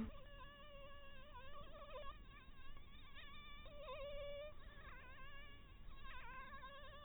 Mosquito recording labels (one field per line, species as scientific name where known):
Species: Anopheles dirus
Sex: female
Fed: blood-fed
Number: one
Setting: cup